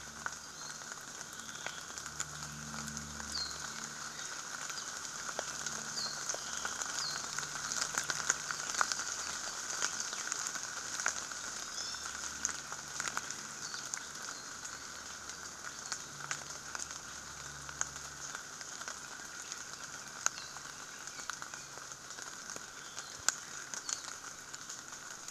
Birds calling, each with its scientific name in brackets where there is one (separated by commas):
Iiwi (Drepanis coccinea), Apapane (Himatione sanguinea)